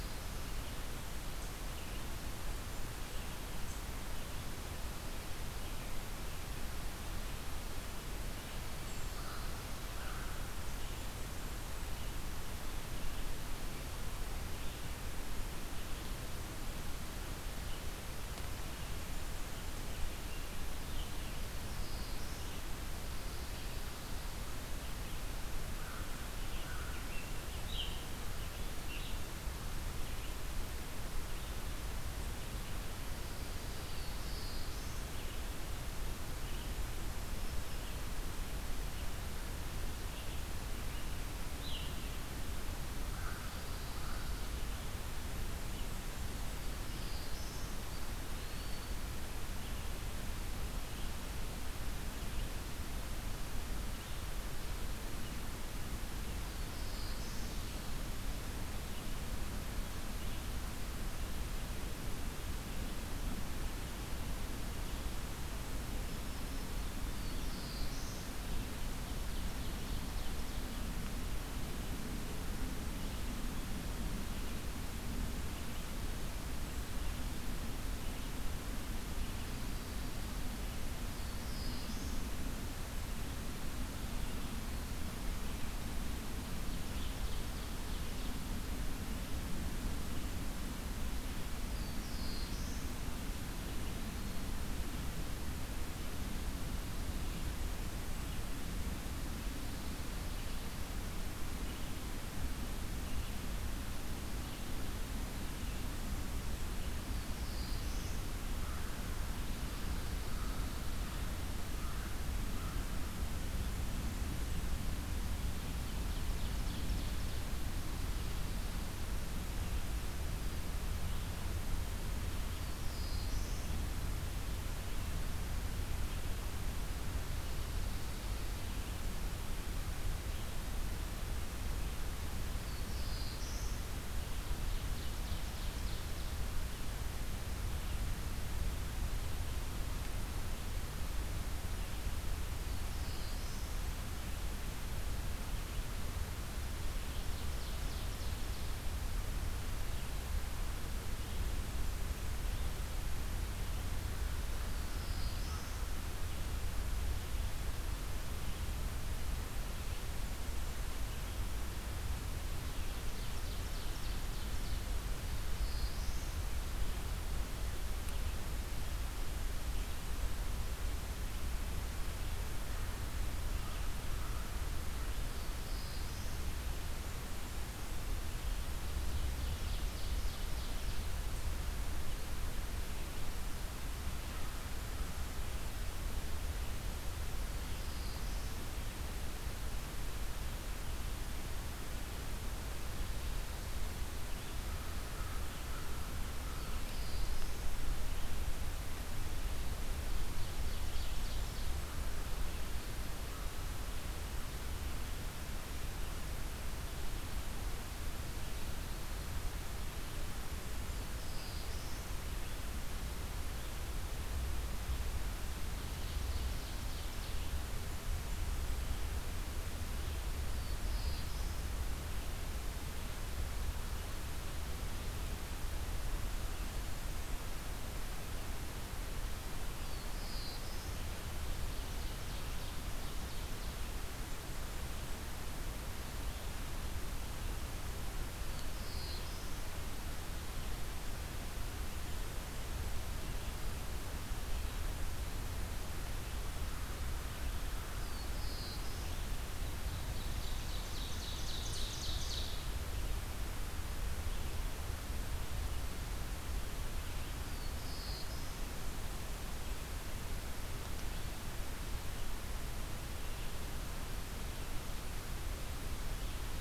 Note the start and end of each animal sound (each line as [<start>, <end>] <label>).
[0.00, 0.60] Black-throated Blue Warbler (Setophaga caerulescens)
[0.00, 35.44] Red-eyed Vireo (Vireo olivaceus)
[8.98, 10.44] American Crow (Corvus brachyrhynchos)
[10.41, 11.91] Blackburnian Warbler (Setophaga fusca)
[21.23, 22.64] Black-throated Blue Warbler (Setophaga caerulescens)
[25.51, 27.28] American Crow (Corvus brachyrhynchos)
[26.26, 29.23] Scarlet Tanager (Piranga olivacea)
[33.64, 35.17] Black-throated Blue Warbler (Setophaga caerulescens)
[36.15, 78.49] Red-eyed Vireo (Vireo olivaceus)
[39.93, 42.07] Scarlet Tanager (Piranga olivacea)
[42.85, 44.39] American Crow (Corvus brachyrhynchos)
[43.23, 44.71] Pine Warbler (Setophaga pinus)
[45.29, 47.81] Blackburnian Warbler (Setophaga fusca)
[47.89, 49.04] Eastern Wood-Pewee (Contopus virens)
[56.21, 57.70] Black-throated Blue Warbler (Setophaga caerulescens)
[65.94, 67.13] Black-throated Green Warbler (Setophaga virens)
[67.06, 68.28] Black-throated Blue Warbler (Setophaga caerulescens)
[68.48, 71.03] Ovenbird (Seiurus aurocapilla)
[80.90, 82.29] Black-throated Blue Warbler (Setophaga caerulescens)
[86.24, 88.57] Ovenbird (Seiurus aurocapilla)
[91.46, 92.86] Black-throated Blue Warbler (Setophaga caerulescens)
[93.62, 94.67] Eastern Wood-Pewee (Contopus virens)
[100.04, 152.70] Red-eyed Vireo (Vireo olivaceus)
[106.84, 108.20] Black-throated Blue Warbler (Setophaga caerulescens)
[108.20, 113.20] American Crow (Corvus brachyrhynchos)
[115.20, 117.63] Ovenbird (Seiurus aurocapilla)
[122.51, 123.81] Black-throated Blue Warbler (Setophaga caerulescens)
[132.54, 133.88] Black-throated Blue Warbler (Setophaga caerulescens)
[134.16, 136.34] Ovenbird (Seiurus aurocapilla)
[142.58, 143.72] Black-throated Blue Warbler (Setophaga caerulescens)
[146.62, 148.90] Ovenbird (Seiurus aurocapilla)
[153.34, 170.10] Red-eyed Vireo (Vireo olivaceus)
[154.24, 155.90] Black-throated Blue Warbler (Setophaga caerulescens)
[159.61, 161.63] Blackburnian Warbler (Setophaga fusca)
[162.19, 165.04] Ovenbird (Seiurus aurocapilla)
[165.16, 166.43] Black-throated Blue Warbler (Setophaga caerulescens)
[173.22, 175.40] American Crow (Corvus brachyrhynchos)
[175.04, 176.33] Black-throated Blue Warbler (Setophaga caerulescens)
[176.16, 178.11] Blackburnian Warbler (Setophaga fusca)
[178.17, 181.27] Ovenbird (Seiurus aurocapilla)
[187.30, 188.64] Black-throated Blue Warbler (Setophaga caerulescens)
[194.51, 196.90] American Crow (Corvus brachyrhynchos)
[196.12, 197.76] Black-throated Blue Warbler (Setophaga caerulescens)
[200.05, 201.89] Ovenbird (Seiurus aurocapilla)
[200.25, 201.94] Blackburnian Warbler (Setophaga fusca)
[209.98, 211.50] Blackburnian Warbler (Setophaga fusca)
[210.47, 212.27] Black-throated Blue Warbler (Setophaga caerulescens)
[215.53, 217.61] Ovenbird (Seiurus aurocapilla)
[217.54, 219.17] Blackburnian Warbler (Setophaga fusca)
[220.26, 221.79] Black-throated Blue Warbler (Setophaga caerulescens)
[229.47, 231.12] Black-throated Blue Warbler (Setophaga caerulescens)
[231.00, 233.90] Ovenbird (Seiurus aurocapilla)
[233.74, 235.28] Blackburnian Warbler (Setophaga fusca)
[238.26, 239.68] Black-throated Blue Warbler (Setophaga caerulescens)
[247.87, 249.28] Black-throated Blue Warbler (Setophaga caerulescens)
[249.60, 252.76] Ovenbird (Seiurus aurocapilla)
[257.19, 258.55] Black-throated Blue Warbler (Setophaga caerulescens)